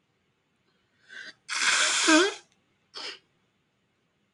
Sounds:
Sneeze